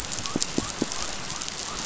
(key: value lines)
label: biophony
recorder: SoundTrap 500